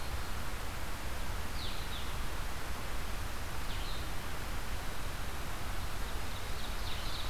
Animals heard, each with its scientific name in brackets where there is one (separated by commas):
Blue-headed Vireo (Vireo solitarius), Ovenbird (Seiurus aurocapilla)